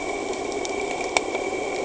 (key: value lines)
label: anthrophony, boat engine
recorder: HydroMoth